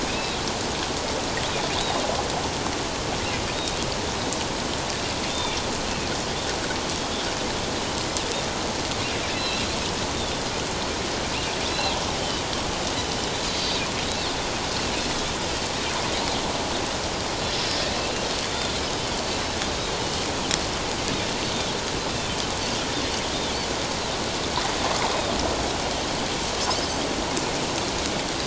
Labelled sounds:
0.1	0.4	Pacific white-sided dolphin, 2.4 to 2.7 kHz
1.8	2.0	Pacific white-sided dolphin, 3.3 to 3.9 kHz
3.5	3.8	Pacific white-sided dolphin, 3.6 to 3.8 kHz
5.3	5.5	Pacific white-sided dolphin, 3.4 to 3.7 kHz
9.3	9.7	Pacific white-sided dolphin, 2.5 to 4.1 kHz
11.7	11.9	Pacific white-sided dolphin, 2.6 to 2.8 kHz
18.5	18.8	Pacific white-sided dolphin, 3.4 to 3.7 kHz

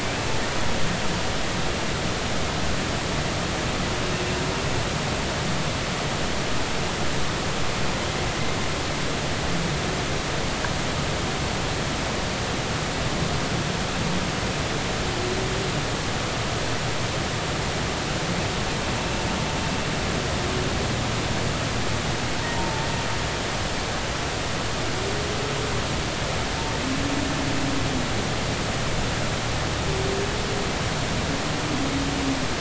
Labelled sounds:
22.4	22.9	humpback whale, 0.83 to 0.96 kHz

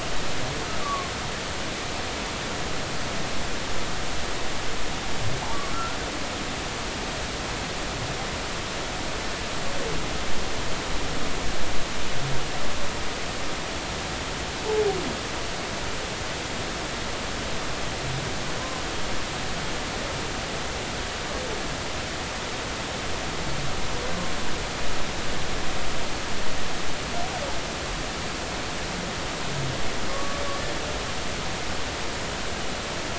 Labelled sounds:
0.8	1.1	humpback whale, 1.0 to 1.2 kHz
5.7	6.0	humpback whale, 1.3 to 1.5 kHz
14.7	15.0	humpback whale, 0.80 to 0.93 kHz
30.1	30.4	humpback whale, 1.1 to 1.2 kHz

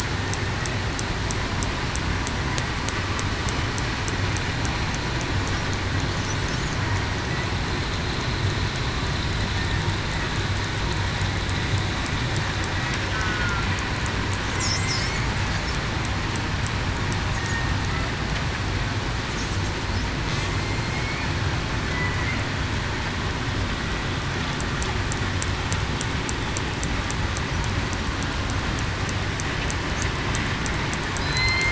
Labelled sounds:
13.1	13.7	killer whale, southern resident, 1.3 to 1.5 kHz
14.6	15.1	killer whale, southern resident, 2.0 to 2.2 kHz
20.9	21.3	killer whale, southern resident, 2.1 to 2.5 kHz
31.2	31.6	killer whale, southern resident, 4.0 to 4.2 kHz

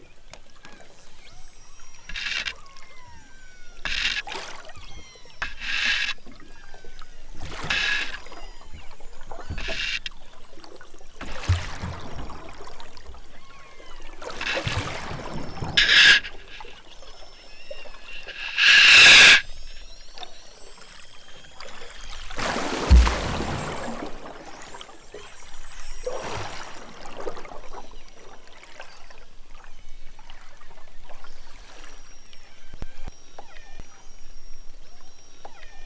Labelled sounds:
1.1	2.1	killer whale, southern Alaska resident, 5.7 to 8.0 kHz
2.5	3.8	killer whale, southern Alaska resident, 0.42 to 8.0 kHz
4.8	5.5	killer whale, southern Alaska resident, 0.78 to 6.3 kHz
6.4	7.2	killer whale, southern Alaska resident, 1.0 to 7.6 kHz
8.2	8.8	killer whale, southern Alaska resident, 0.60 to 5.9 kHz
9.1	9.6	killer whale, southern Alaska resident, 2.0 to 5.0 kHz
12.0	12.9	killer whale, southern Alaska resident, 2.6 to 5.9 kHz
13.3	14.2	killer whale, southern Alaska resident, 0.32 to 5.4 kHz
14.9	15.8	killer whale, southern Alaska resident, 2.2 to 5.6 kHz
17.0	18.2	killer whale, southern Alaska resident, 1.1 to 5.8 kHz
19.4	22.4	killer whale, southern Alaska resident, 2.6 to 8.0 kHz
25.1	25.4	killer whale, southern Alaska resident, 1.7 to 4.7 kHz
25.6	26.0	killer whale, southern Alaska resident, 1.2 to 5.5 kHz
27.5	28.2	killer whale, southern Alaska resident, 1.9 to 5.7 kHz
29.6	30.1	killer whale, southern Alaska resident, 1.8 to 6.4 kHz
31.6	35.8	killer whale, southern Alaska resident, 1.2 to 6.0 kHz

